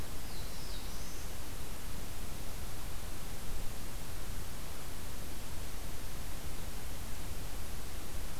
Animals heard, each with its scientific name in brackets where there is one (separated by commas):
Black-throated Blue Warbler (Setophaga caerulescens)